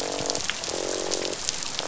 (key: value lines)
label: biophony, croak
recorder: SoundTrap 500